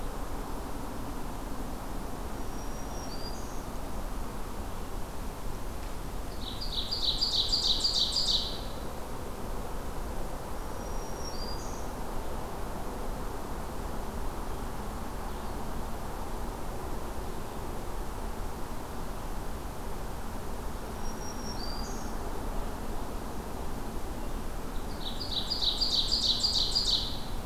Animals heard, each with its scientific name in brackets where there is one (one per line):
Ovenbird (Seiurus aurocapilla)
Black-throated Green Warbler (Setophaga virens)